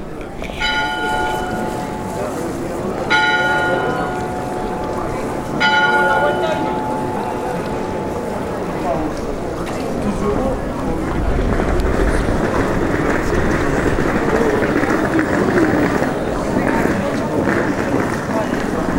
Does the bell ring more than once?
yes